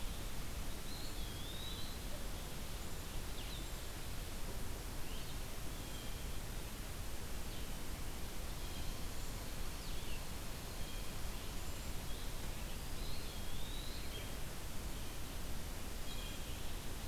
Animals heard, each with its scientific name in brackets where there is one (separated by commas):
Cedar Waxwing (Bombycilla cedrorum), Blue Jay (Cyanocitta cristata), Eastern Wood-Pewee (Contopus virens), Blue-headed Vireo (Vireo solitarius)